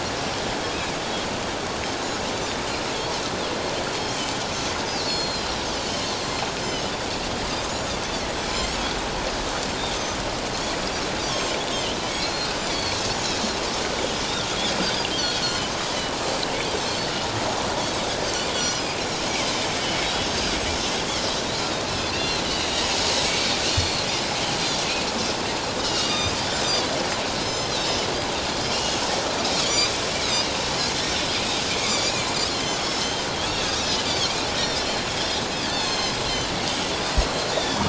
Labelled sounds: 3.8	6.8	Pacific white-sided dolphin, 3.4 to 7.8 kHz
11.3	13.0	Pacific white-sided dolphin, 2.7 to 7.6 kHz
14.8	15.7	Pacific white-sided dolphin, 2.9 to 5.1 kHz
16.9	17.1	Pacific white-sided dolphin, 4.1 to 4.5 kHz
18.5	19.0	Pacific white-sided dolphin, 4.3 to 5.9 kHz
22.1	22.9	Pacific white-sided dolphin, 2.5 to 4.5 kHz
23.3	24.1	Pacific white-sided dolphin, 2.2 to 7.4 kHz
25.8	26.4	Pacific white-sided dolphin, 2.3 to 6.3 kHz
27.4	27.7	Pacific white-sided dolphin, 5.1 to 6.2 kHz
28.7	29.9	Pacific white-sided dolphin, 2.7 to 7.3 kHz
31.7	32.8	Pacific white-sided dolphin, 3.0 to 7.2 kHz
34.1	36.5	Pacific white-sided dolphin, 2.5 to 6.4 kHz
37.5	37.8	Pacific white-sided dolphin, 3.2 to 3.9 kHz

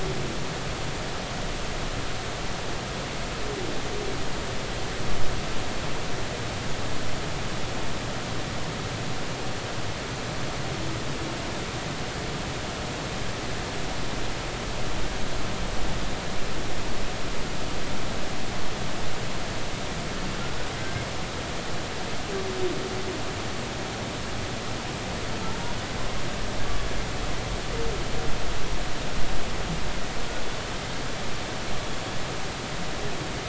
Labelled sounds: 20.8	21.0	humpback whale, 1.5 to 1.6 kHz

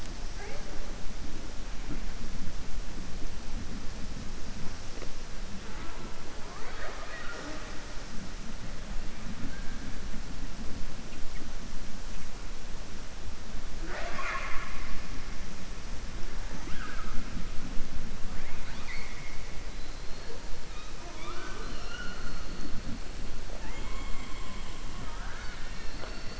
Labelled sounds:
6.4	7.8	killer whale, southern resident, 0.37 to 6.2 kHz
18.4	19.4	killer whale, southern resident, 0.97 to 4.7 kHz
21.0	22.4	killer whale, southern resident, 0.33 to 5.5 kHz

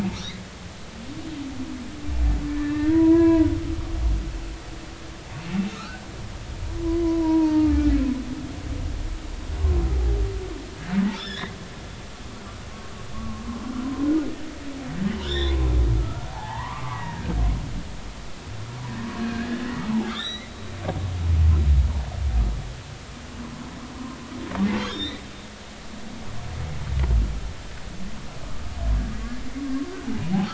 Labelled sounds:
2.5	3.5	humpback whale, 0.90 to 2.7 kHz
5.7	6.0	humpback whale, 1.2 to 4.2 kHz
6.8	7.9	humpback whale, 0.83 to 2.5 kHz
11.1	11.5	humpback whale, 1.5 to 5.6 kHz
13.1	13.7	humpback whale, 0.96 to 1.2 kHz
15.1	17.0	humpback whale, 0.80 to 5.6 kHz
19.2	20.5	humpback whale, 1.5 to 6.0 kHz
24.9	25.2	humpback whale, 3.5 to 4.1 kHz

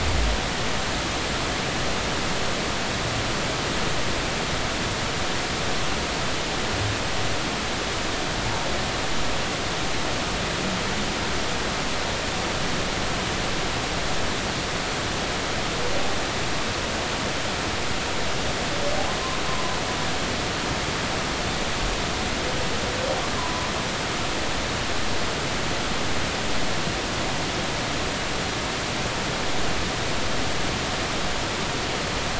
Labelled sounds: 23.4	23.7	humpback whale, 0.93 to 1.1 kHz

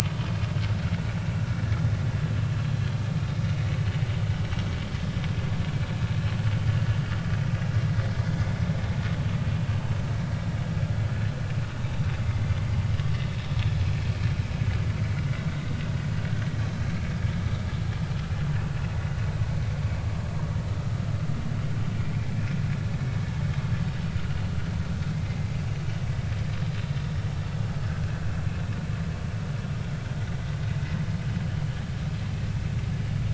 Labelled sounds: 18.6	18.8	vessel noise, 2.5 to 2.6 kHz

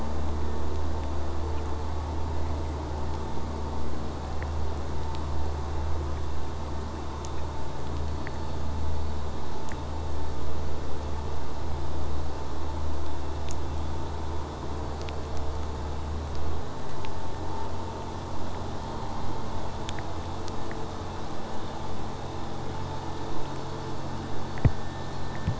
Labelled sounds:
18.8	20.1	killer whale, southern resident, J pod, 3.0 to 4.6 kHz

